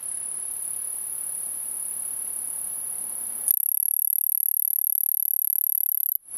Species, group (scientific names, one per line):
Cyphoderris monstrosa
Orthoptera